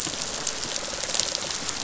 {"label": "biophony, rattle response", "recorder": "SoundTrap 500"}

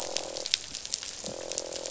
{"label": "biophony, croak", "recorder": "SoundTrap 500"}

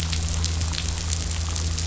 {"label": "anthrophony, boat engine", "recorder": "SoundTrap 500"}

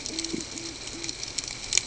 {"label": "ambient", "recorder": "HydroMoth"}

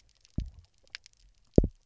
{"label": "biophony, double pulse", "recorder": "SoundTrap 300"}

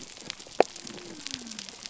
{"label": "biophony", "recorder": "SoundTrap 300"}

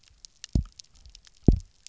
{"label": "biophony, double pulse", "recorder": "SoundTrap 300"}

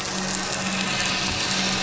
{"label": "anthrophony, boat engine", "recorder": "SoundTrap 500"}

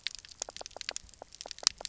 {"label": "biophony, knock croak", "recorder": "SoundTrap 300"}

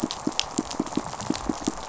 {"label": "biophony, pulse", "recorder": "SoundTrap 500"}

